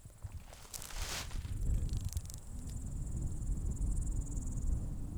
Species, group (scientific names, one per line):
Psophus stridulus
Orthoptera